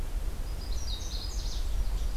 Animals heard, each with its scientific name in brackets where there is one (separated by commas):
Canada Warbler (Cardellina canadensis)